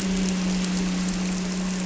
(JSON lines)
{"label": "anthrophony, boat engine", "recorder": "SoundTrap 300"}